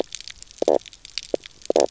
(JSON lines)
{"label": "biophony, knock croak", "recorder": "SoundTrap 300"}